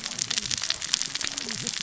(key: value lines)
label: biophony, cascading saw
recorder: SoundTrap 600 or HydroMoth